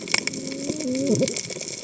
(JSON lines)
{"label": "biophony, cascading saw", "recorder": "HydroMoth"}